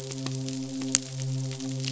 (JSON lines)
{"label": "biophony, midshipman", "recorder": "SoundTrap 500"}